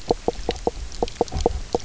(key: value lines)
label: biophony, knock croak
recorder: SoundTrap 300